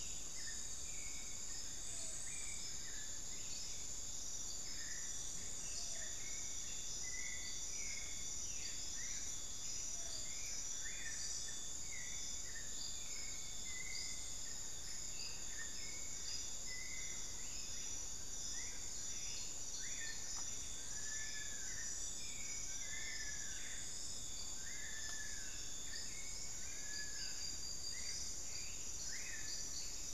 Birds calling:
Long-billed Woodcreeper (Nasica longirostris)

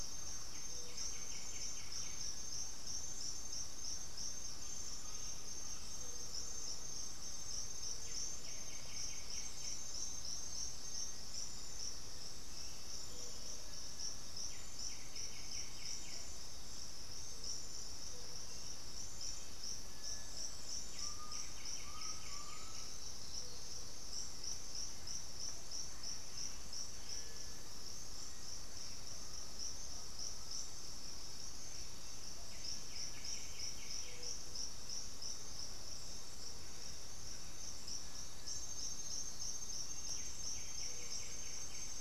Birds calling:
Black-throated Antbird (Myrmophylax atrothorax), Cinereous Tinamou (Crypturellus cinereus), White-winged Becard (Pachyramphus polychopterus), Black-faced Antthrush (Formicarius analis), Undulated Tinamou (Crypturellus undulatus), Thrush-like Wren (Campylorhynchus turdinus), Hauxwell's Thrush (Turdus hauxwelli)

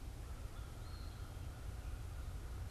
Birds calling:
Eastern Wood-Pewee (Contopus virens), American Crow (Corvus brachyrhynchos)

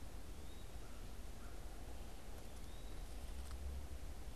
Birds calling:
American Crow (Corvus brachyrhynchos), Eastern Wood-Pewee (Contopus virens)

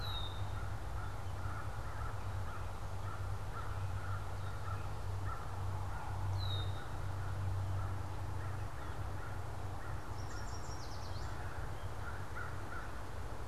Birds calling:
American Crow (Corvus brachyrhynchos), Red-winged Blackbird (Agelaius phoeniceus), Yellow Warbler (Setophaga petechia)

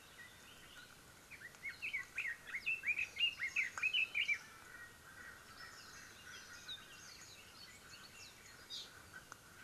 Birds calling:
Red-billed Leiothrix (Leiothrix lutea)

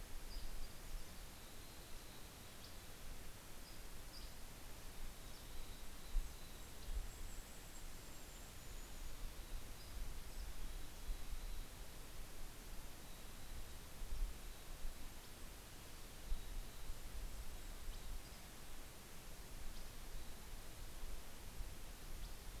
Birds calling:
Golden-crowned Kinglet (Regulus satrapa), Dusky Flycatcher (Empidonax oberholseri), Mountain Chickadee (Poecile gambeli)

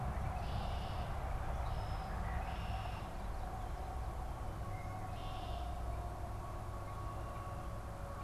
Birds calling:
Red-winged Blackbird (Agelaius phoeniceus)

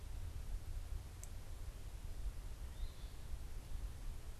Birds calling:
Eastern Phoebe (Sayornis phoebe)

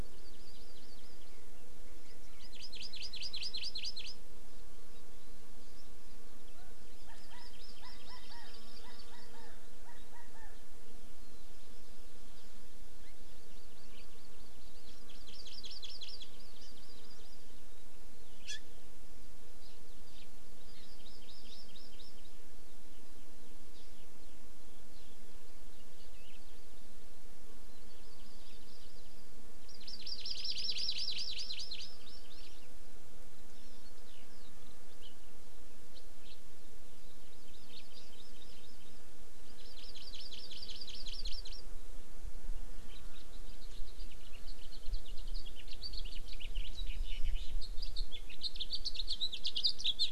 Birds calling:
Hawaii Amakihi (Chlorodrepanis virens), House Finch (Haemorhous mexicanus), Chinese Hwamei (Garrulax canorus), Eurasian Skylark (Alauda arvensis)

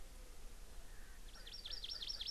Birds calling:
Hawaii Amakihi (Chlorodrepanis virens), Erckel's Francolin (Pternistis erckelii)

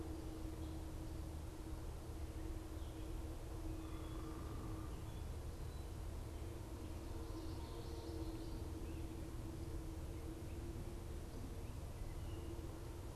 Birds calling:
Common Yellowthroat (Geothlypis trichas), unidentified bird

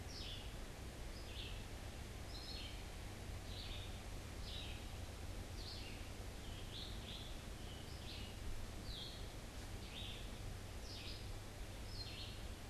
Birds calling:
Red-eyed Vireo (Vireo olivaceus), Scarlet Tanager (Piranga olivacea)

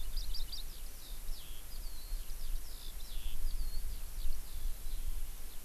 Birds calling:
Eurasian Skylark (Alauda arvensis)

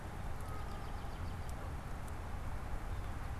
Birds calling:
American Robin (Turdus migratorius)

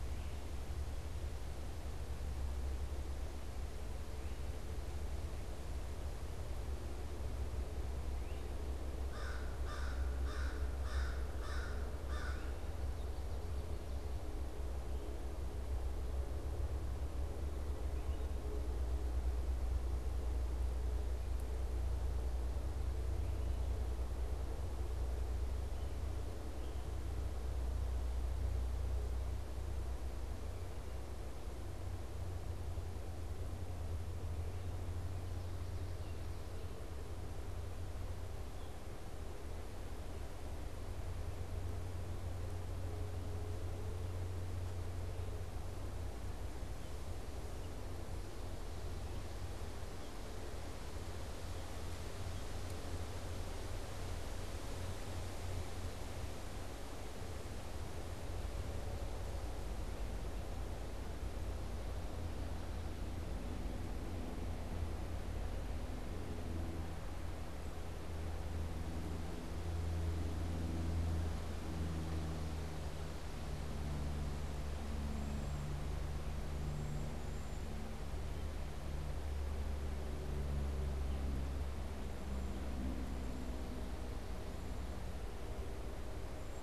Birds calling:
Cedar Waxwing (Bombycilla cedrorum), American Crow (Corvus brachyrhynchos), Great Crested Flycatcher (Myiarchus crinitus)

